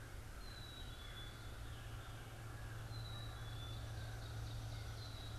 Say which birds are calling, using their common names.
American Crow, Black-capped Chickadee